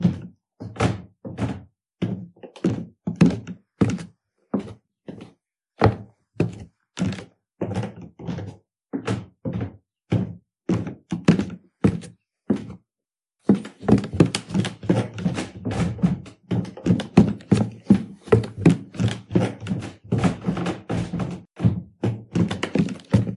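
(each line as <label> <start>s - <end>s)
Slow footsteps repeatedly squeaking on wooden floor indoors. 0.0s - 12.8s
Fast footsteps on squeaky wood indoors. 13.4s - 23.4s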